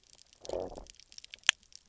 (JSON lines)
{"label": "biophony, low growl", "recorder": "SoundTrap 300"}